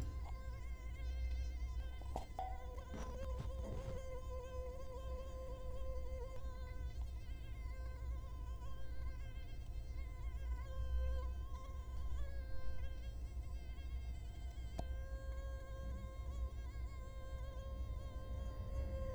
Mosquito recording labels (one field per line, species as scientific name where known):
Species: Culex quinquefasciatus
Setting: cup